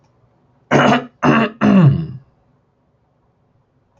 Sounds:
Throat clearing